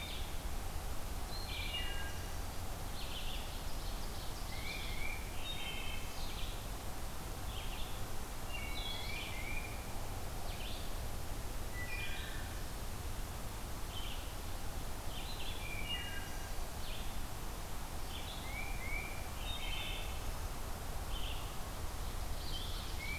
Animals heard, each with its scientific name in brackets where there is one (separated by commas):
Tufted Titmouse (Baeolophus bicolor), Wood Thrush (Hylocichla mustelina), Red-eyed Vireo (Vireo olivaceus), Ovenbird (Seiurus aurocapilla)